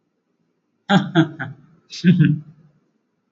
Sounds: Laughter